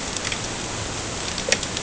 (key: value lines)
label: ambient
recorder: HydroMoth